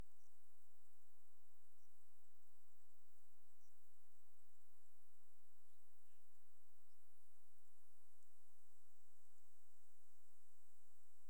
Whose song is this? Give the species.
Eumodicogryllus bordigalensis